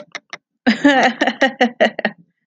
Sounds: Laughter